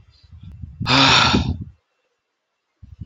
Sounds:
Sigh